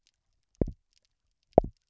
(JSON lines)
{"label": "biophony, double pulse", "recorder": "SoundTrap 300"}